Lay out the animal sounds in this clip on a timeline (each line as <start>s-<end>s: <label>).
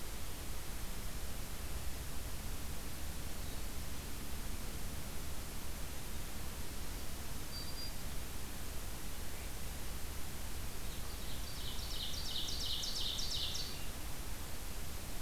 7.5s-8.0s: Black-throated Green Warbler (Setophaga virens)
10.9s-13.8s: Ovenbird (Seiurus aurocapilla)